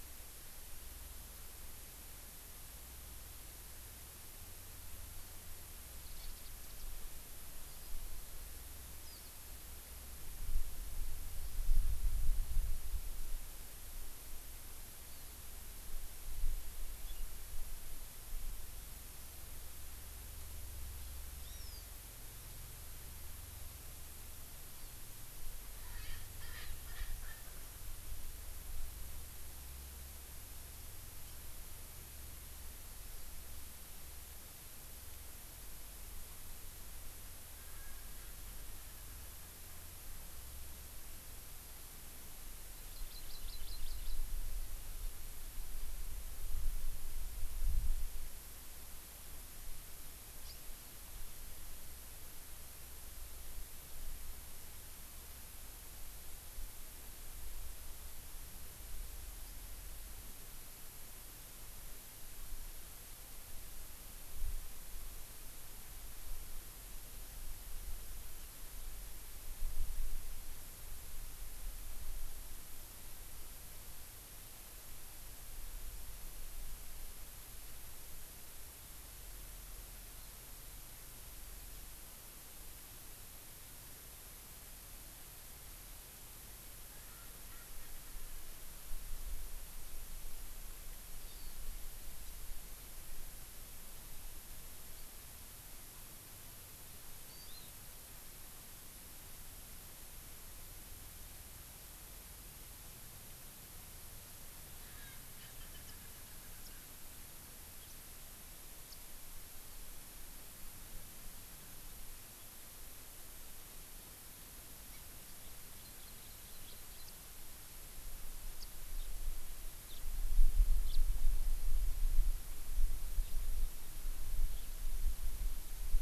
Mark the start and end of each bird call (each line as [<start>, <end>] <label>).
[6.02, 6.52] Warbling White-eye (Zosterops japonicus)
[9.02, 9.32] Warbling White-eye (Zosterops japonicus)
[21.42, 21.92] Hawaii Amakihi (Chlorodrepanis virens)
[24.72, 24.92] Hawaii Amakihi (Chlorodrepanis virens)
[25.82, 27.62] Erckel's Francolin (Pternistis erckelii)
[37.52, 39.72] Erckel's Francolin (Pternistis erckelii)
[42.72, 44.22] Hawaii Amakihi (Chlorodrepanis virens)
[50.42, 50.52] House Finch (Haemorhous mexicanus)
[86.92, 88.72] Erckel's Francolin (Pternistis erckelii)
[91.22, 91.52] Hawaii Amakihi (Chlorodrepanis virens)
[97.32, 97.72] Hawaii Amakihi (Chlorodrepanis virens)
[104.82, 106.82] Erckel's Francolin (Pternistis erckelii)
[105.82, 105.92] Warbling White-eye (Zosterops japonicus)
[106.62, 106.72] Warbling White-eye (Zosterops japonicus)
[107.82, 107.92] Warbling White-eye (Zosterops japonicus)
[108.82, 108.92] Warbling White-eye (Zosterops japonicus)
[115.52, 117.02] Hawaii Amakihi (Chlorodrepanis virens)
[118.52, 118.72] Warbling White-eye (Zosterops japonicus)
[119.82, 120.02] House Finch (Haemorhous mexicanus)
[120.82, 121.02] House Finch (Haemorhous mexicanus)